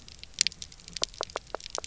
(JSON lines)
{"label": "biophony, knock", "recorder": "SoundTrap 300"}